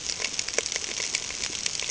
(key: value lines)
label: ambient
recorder: HydroMoth